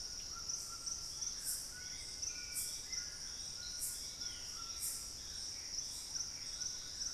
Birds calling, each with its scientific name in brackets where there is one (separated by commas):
Gray Antbird (Cercomacra cinerascens), Black-spotted Bare-eye (Phlegopsis nigromaculata), White-throated Toucan (Ramphastos tucanus), Hauxwell's Thrush (Turdus hauxwelli)